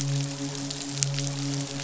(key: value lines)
label: biophony, midshipman
recorder: SoundTrap 500